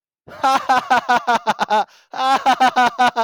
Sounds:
Laughter